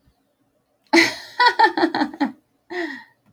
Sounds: Laughter